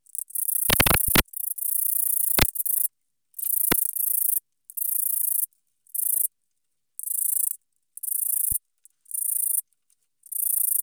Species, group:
Eugaster guyoni, Orthoptera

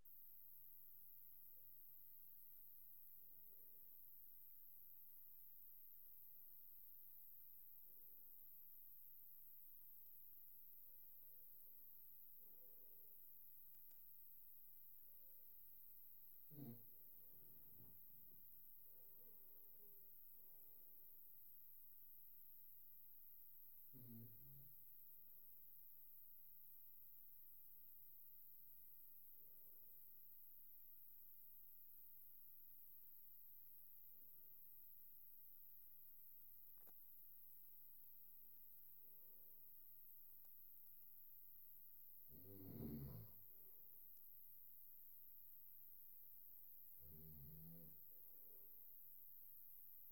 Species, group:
Platystolus martinezii, Orthoptera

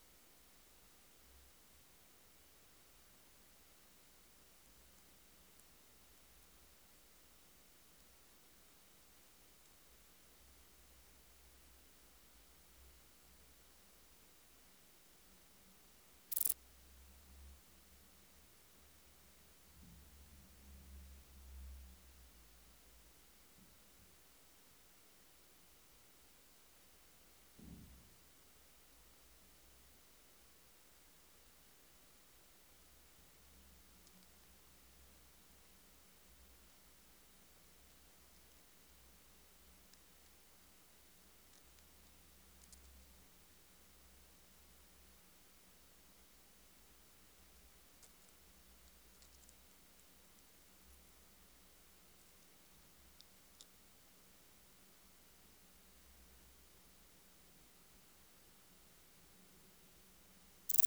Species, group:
Pachytrachis gracilis, Orthoptera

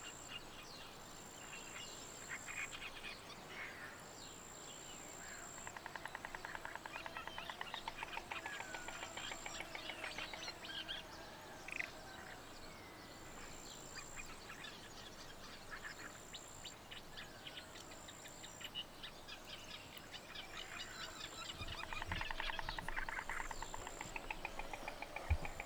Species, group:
Gryllotalpa africana, Orthoptera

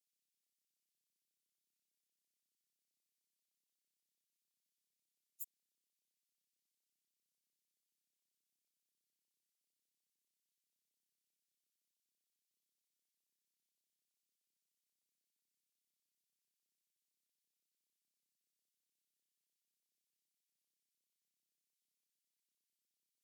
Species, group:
Steropleurus andalusius, Orthoptera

